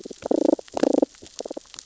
{"label": "biophony, damselfish", "recorder": "SoundTrap 600 or HydroMoth"}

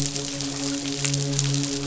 {"label": "biophony, midshipman", "recorder": "SoundTrap 500"}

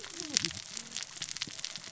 {"label": "biophony, cascading saw", "recorder": "SoundTrap 600 or HydroMoth"}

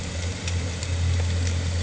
{"label": "anthrophony, boat engine", "recorder": "HydroMoth"}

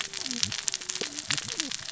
{"label": "biophony, cascading saw", "recorder": "SoundTrap 600 or HydroMoth"}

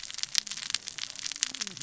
{"label": "biophony, cascading saw", "recorder": "SoundTrap 600 or HydroMoth"}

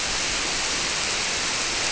{"label": "biophony", "recorder": "SoundTrap 300"}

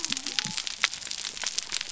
{"label": "biophony", "recorder": "SoundTrap 300"}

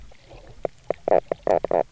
{"label": "biophony, knock croak", "recorder": "SoundTrap 300"}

